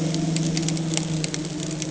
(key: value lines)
label: anthrophony, boat engine
recorder: HydroMoth